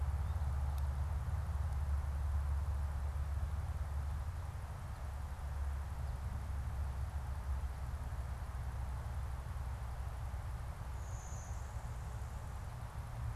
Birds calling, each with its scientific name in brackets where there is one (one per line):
Blue-winged Warbler (Vermivora cyanoptera)